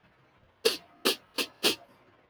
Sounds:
Sniff